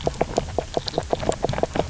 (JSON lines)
{"label": "biophony, knock croak", "recorder": "SoundTrap 300"}